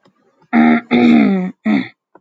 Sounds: Throat clearing